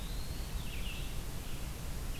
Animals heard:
Red-eyed Vireo (Vireo olivaceus), Eastern Wood-Pewee (Contopus virens)

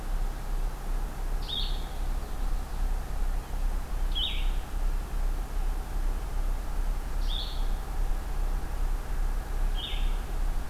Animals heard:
Blue-headed Vireo (Vireo solitarius), Common Yellowthroat (Geothlypis trichas)

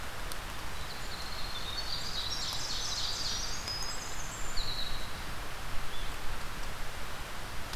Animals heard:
Ovenbird (Seiurus aurocapilla), Winter Wren (Troglodytes hiemalis), Blue-headed Vireo (Vireo solitarius)

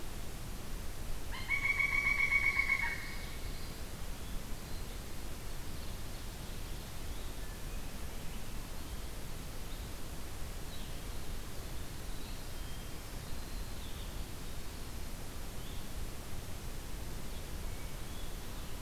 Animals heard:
Red-eyed Vireo (Vireo olivaceus), Hermit Thrush (Catharus guttatus), Pileated Woodpecker (Dryocopus pileatus), Ovenbird (Seiurus aurocapilla), Common Yellowthroat (Geothlypis trichas), Blue-headed Vireo (Vireo solitarius)

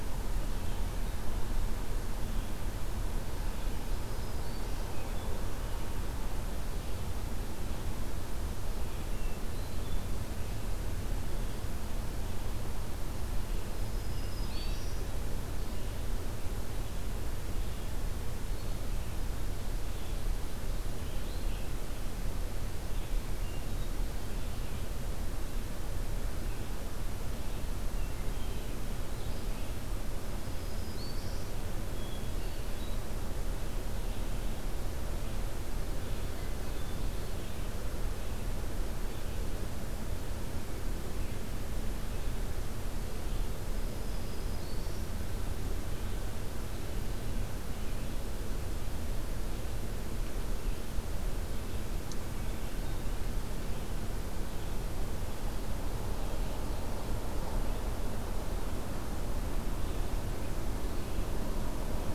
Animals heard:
Red-eyed Vireo (Vireo olivaceus), Black-throated Green Warbler (Setophaga virens), Hermit Thrush (Catharus guttatus)

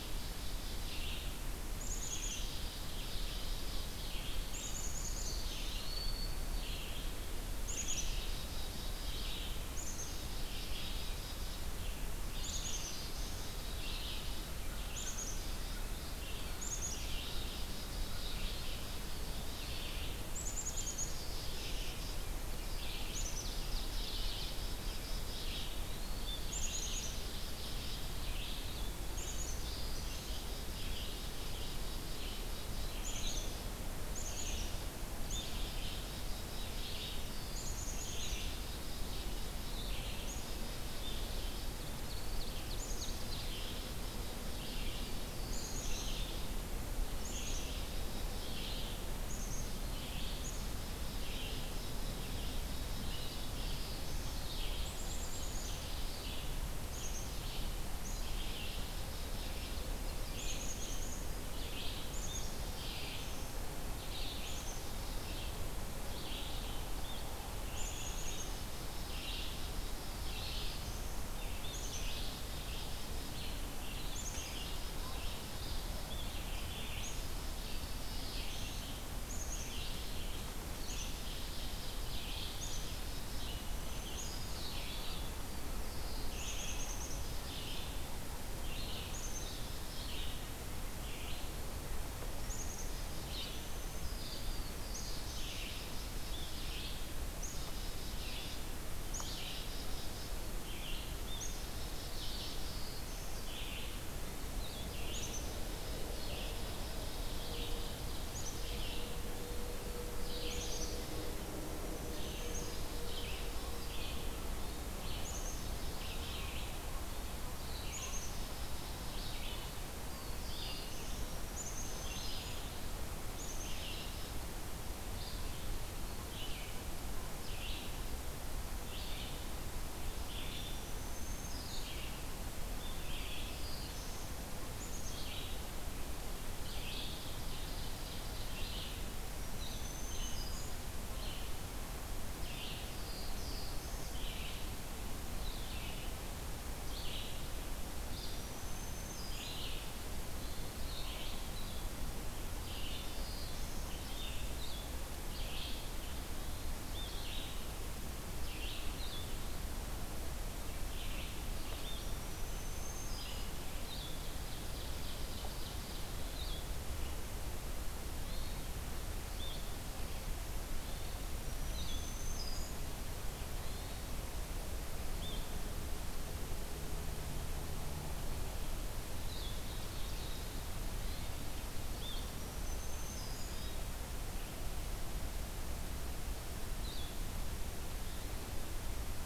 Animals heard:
Ovenbird (Seiurus aurocapilla), Black-throated Green Warbler (Setophaga virens), Black-capped Chickadee (Poecile atricapillus), Eastern Wood-Pewee (Contopus virens), Hermit Thrush (Catharus guttatus), Black-throated Blue Warbler (Setophaga caerulescens), Red-eyed Vireo (Vireo olivaceus)

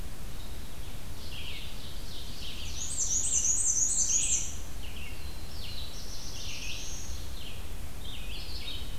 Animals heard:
Ovenbird (Seiurus aurocapilla), Black-throated Blue Warbler (Setophaga caerulescens), Black-and-white Warbler (Mniotilta varia), Red-eyed Vireo (Vireo olivaceus)

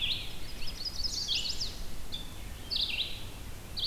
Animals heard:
Rose-breasted Grosbeak (Pheucticus ludovicianus), Red-eyed Vireo (Vireo olivaceus), Chestnut-sided Warbler (Setophaga pensylvanica)

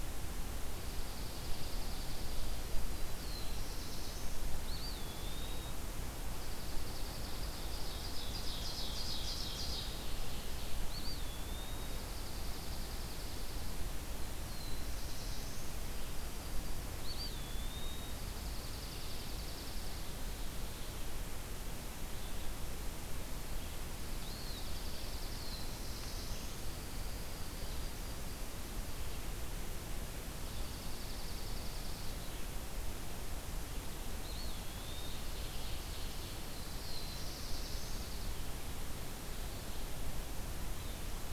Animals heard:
Yellow-rumped Warbler (Setophaga coronata), Black-throated Blue Warbler (Setophaga caerulescens), Dark-eyed Junco (Junco hyemalis), Eastern Wood-Pewee (Contopus virens), Ovenbird (Seiurus aurocapilla)

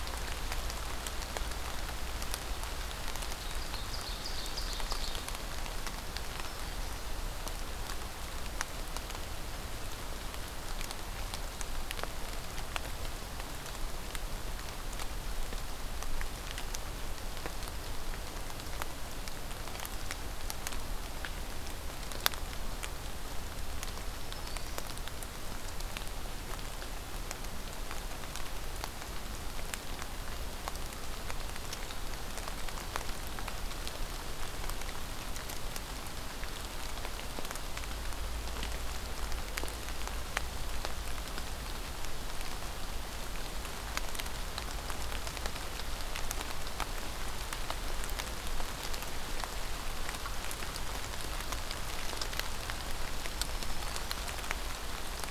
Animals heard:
Ovenbird (Seiurus aurocapilla), Black-throated Green Warbler (Setophaga virens)

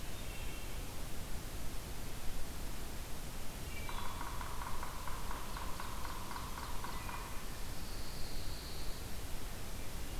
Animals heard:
Wood Thrush (Hylocichla mustelina), Ovenbird (Seiurus aurocapilla), Pine Warbler (Setophaga pinus), Yellow-bellied Sapsucker (Sphyrapicus varius)

